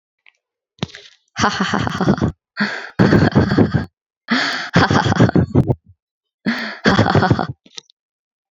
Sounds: Laughter